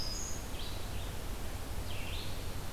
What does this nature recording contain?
Black-throated Green Warbler, Red-eyed Vireo